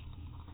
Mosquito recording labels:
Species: mosquito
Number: one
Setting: cup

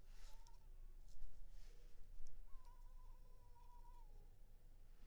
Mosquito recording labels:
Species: Culex pipiens complex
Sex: female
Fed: unfed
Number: one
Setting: cup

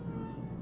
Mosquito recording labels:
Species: Aedes albopictus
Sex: female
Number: one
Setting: insect culture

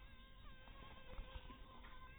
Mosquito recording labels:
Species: Anopheles harrisoni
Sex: female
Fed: unfed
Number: one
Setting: cup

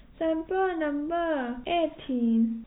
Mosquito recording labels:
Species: no mosquito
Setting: cup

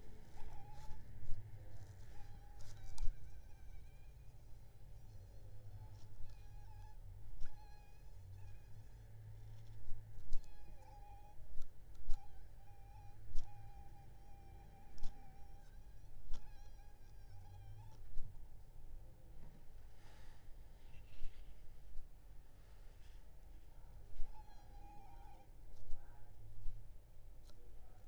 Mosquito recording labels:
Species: Aedes aegypti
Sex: female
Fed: unfed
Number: one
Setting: cup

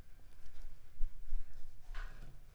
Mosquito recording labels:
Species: Mansonia uniformis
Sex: female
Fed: unfed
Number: one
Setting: cup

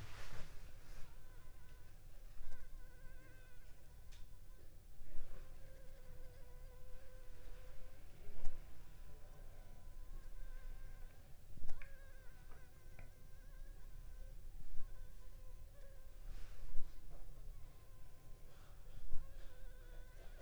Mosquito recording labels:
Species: Anopheles funestus s.l.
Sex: female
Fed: unfed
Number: one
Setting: cup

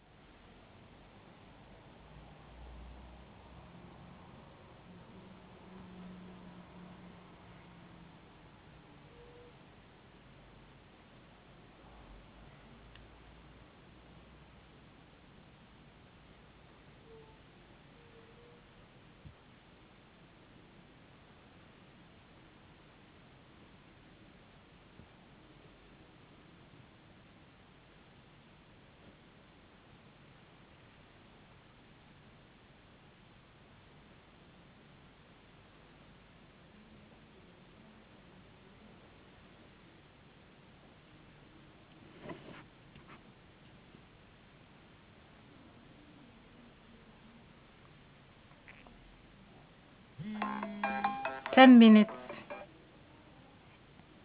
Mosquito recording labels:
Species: no mosquito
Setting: insect culture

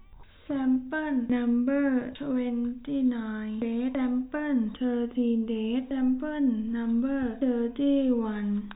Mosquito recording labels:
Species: no mosquito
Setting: cup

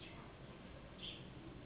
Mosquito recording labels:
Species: Anopheles gambiae s.s.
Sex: female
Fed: unfed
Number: one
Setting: insect culture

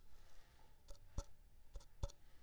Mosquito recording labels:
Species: Anopheles arabiensis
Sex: female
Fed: unfed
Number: one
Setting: cup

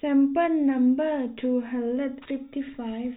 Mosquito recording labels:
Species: no mosquito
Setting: cup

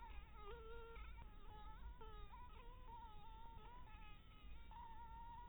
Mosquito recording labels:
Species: Anopheles dirus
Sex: female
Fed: blood-fed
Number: one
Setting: cup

